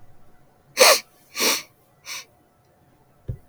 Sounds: Sniff